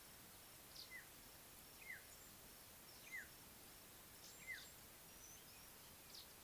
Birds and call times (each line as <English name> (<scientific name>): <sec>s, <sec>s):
African Black-headed Oriole (Oriolus larvatus): 3.1s